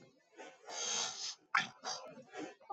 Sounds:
Throat clearing